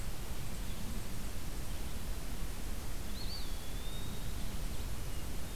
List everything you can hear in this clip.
Eastern Wood-Pewee